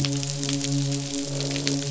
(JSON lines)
{"label": "biophony, midshipman", "recorder": "SoundTrap 500"}
{"label": "biophony, croak", "recorder": "SoundTrap 500"}